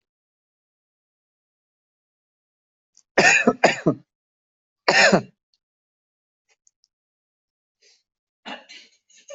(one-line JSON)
{"expert_labels": [{"quality": "good", "cough_type": "dry", "dyspnea": false, "wheezing": false, "stridor": false, "choking": false, "congestion": false, "nothing": true, "diagnosis": "upper respiratory tract infection", "severity": "mild"}], "age": 30, "gender": "male", "respiratory_condition": false, "fever_muscle_pain": false, "status": "healthy"}